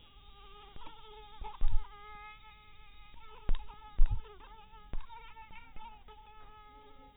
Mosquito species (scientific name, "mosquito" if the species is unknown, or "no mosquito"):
mosquito